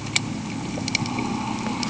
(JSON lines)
{"label": "anthrophony, boat engine", "recorder": "HydroMoth"}